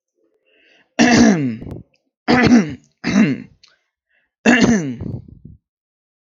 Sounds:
Throat clearing